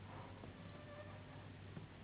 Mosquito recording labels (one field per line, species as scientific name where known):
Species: Anopheles gambiae s.s.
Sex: female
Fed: unfed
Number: one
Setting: insect culture